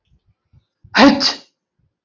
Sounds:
Sneeze